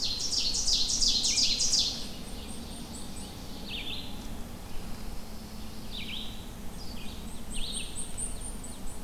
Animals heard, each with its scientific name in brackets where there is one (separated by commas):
Ovenbird (Seiurus aurocapilla), Red-eyed Vireo (Vireo olivaceus), Blackpoll Warbler (Setophaga striata)